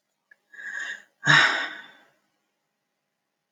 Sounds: Sigh